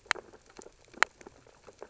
{"label": "biophony, sea urchins (Echinidae)", "recorder": "SoundTrap 600 or HydroMoth"}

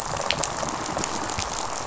{"label": "biophony, rattle response", "recorder": "SoundTrap 500"}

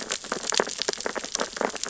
{"label": "biophony, sea urchins (Echinidae)", "recorder": "SoundTrap 600 or HydroMoth"}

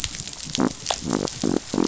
{"label": "biophony", "recorder": "SoundTrap 500"}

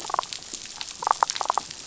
{"label": "biophony", "recorder": "SoundTrap 500"}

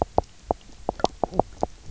{"label": "biophony, knock croak", "recorder": "SoundTrap 300"}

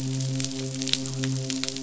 {"label": "biophony, midshipman", "recorder": "SoundTrap 500"}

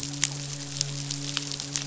{"label": "biophony, midshipman", "recorder": "SoundTrap 500"}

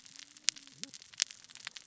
{"label": "biophony, cascading saw", "recorder": "SoundTrap 600 or HydroMoth"}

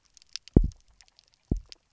{"label": "biophony, double pulse", "recorder": "SoundTrap 300"}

